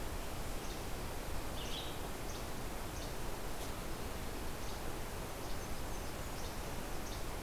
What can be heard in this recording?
Blue-headed Vireo, Least Flycatcher